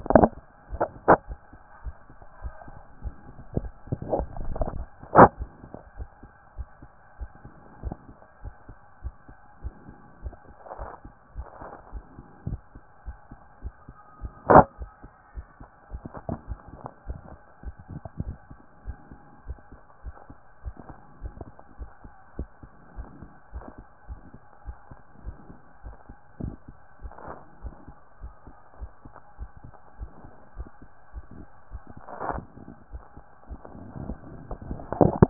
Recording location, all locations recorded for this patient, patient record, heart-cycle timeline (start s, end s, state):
pulmonary valve (PV)
aortic valve (AV)+pulmonary valve (PV)+tricuspid valve (TV)
#Age: Child
#Sex: Male
#Height: 164.0 cm
#Weight: 70.7 kg
#Pregnancy status: False
#Murmur: Absent
#Murmur locations: nan
#Most audible location: nan
#Systolic murmur timing: nan
#Systolic murmur shape: nan
#Systolic murmur grading: nan
#Systolic murmur pitch: nan
#Systolic murmur quality: nan
#Diastolic murmur timing: nan
#Diastolic murmur shape: nan
#Diastolic murmur grading: nan
#Diastolic murmur pitch: nan
#Diastolic murmur quality: nan
#Outcome: Normal
#Campaign: 2014 screening campaign
0.00	5.98	unannotated
5.98	6.08	S1
6.08	6.24	systole
6.24	6.34	S2
6.34	6.56	diastole
6.56	6.68	S1
6.68	6.82	systole
6.82	6.92	S2
6.92	7.18	diastole
7.18	7.30	S1
7.30	7.44	systole
7.44	7.54	S2
7.54	7.83	diastole
7.83	7.96	S1
7.96	8.10	systole
8.10	8.20	S2
8.20	8.44	diastole
8.44	8.54	S1
8.54	8.68	systole
8.68	8.78	S2
8.78	9.02	diastole
9.02	9.14	S1
9.14	9.28	systole
9.28	9.38	S2
9.38	9.62	diastole
9.62	9.74	S1
9.74	9.86	systole
9.86	9.96	S2
9.96	10.22	diastole
10.22	10.34	S1
10.34	10.48	systole
10.48	10.58	S2
10.58	10.78	diastole
10.78	10.90	S1
10.90	11.04	systole
11.04	11.14	S2
11.14	11.36	diastole
11.36	11.46	S1
11.46	11.60	systole
11.60	11.70	S2
11.70	11.92	diastole
11.92	12.04	S1
12.04	12.16	systole
12.16	12.24	S2
12.24	12.46	diastole
12.46	12.60	S1
12.60	12.74	systole
12.74	12.82	S2
12.82	13.06	diastole
13.06	13.18	S1
13.18	13.30	systole
13.30	13.40	S2
13.40	13.62	diastole
13.62	13.74	S1
13.74	13.88	systole
13.88	13.98	S2
13.98	14.24	diastole
14.24	35.30	unannotated